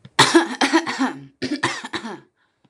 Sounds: Cough